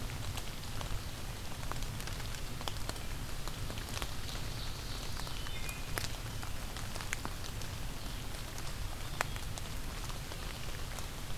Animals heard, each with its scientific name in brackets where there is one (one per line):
Ovenbird (Seiurus aurocapilla)
Wood Thrush (Hylocichla mustelina)